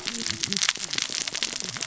{"label": "biophony, cascading saw", "recorder": "SoundTrap 600 or HydroMoth"}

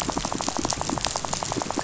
{"label": "biophony, rattle", "recorder": "SoundTrap 500"}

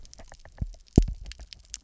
{"label": "biophony", "recorder": "SoundTrap 300"}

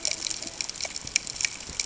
{"label": "ambient", "recorder": "HydroMoth"}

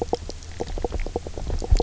{"label": "biophony, knock croak", "recorder": "SoundTrap 300"}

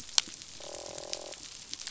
{"label": "biophony, croak", "recorder": "SoundTrap 500"}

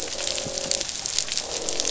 {"label": "biophony, croak", "recorder": "SoundTrap 500"}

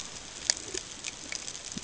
{"label": "ambient", "recorder": "HydroMoth"}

